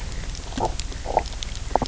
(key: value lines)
label: biophony, knock croak
recorder: SoundTrap 300